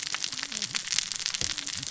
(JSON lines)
{"label": "biophony, cascading saw", "recorder": "SoundTrap 600 or HydroMoth"}